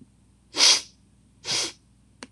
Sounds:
Sniff